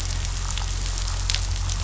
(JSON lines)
{"label": "anthrophony, boat engine", "recorder": "SoundTrap 500"}